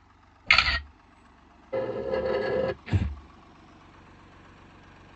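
At 0.46 seconds, you can hear the sound of a single-lens reflex camera. Then, at 1.72 seconds, the sound of furniture moving is heard. Finally, at 2.86 seconds, breathing is audible.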